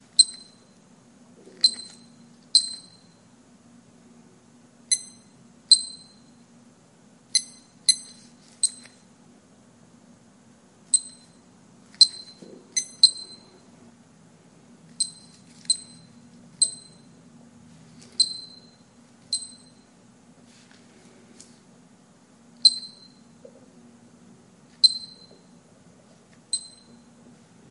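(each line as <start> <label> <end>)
0.0 A sharp, high-pitched electronic beep occurs briefly. 0.8
1.5 Two sharp, high-pitched electronic beeps occur briefly. 2.9
4.8 One low and one sharp, high-pitched electronic beep occur briefly. 6.2
7.2 Three sharp, high-pitched electronic beeps occur briefly. 9.0
10.8 A brief mixture of low, sharp, high-pitched electronic beeps occurs. 13.5
14.9 Three sharp, high-pitched electronic beeps occur briefly. 17.0
18.0 Two sharp, high-pitched electronic beeps occur briefly. 19.7
22.5 A sharp, high-pitched electronic beep occurs briefly. 23.2
24.7 A sharp, high-pitched electronic beep occurs briefly. 25.5
26.4 A sharp, high-pitched electronic beep occurs briefly. 26.8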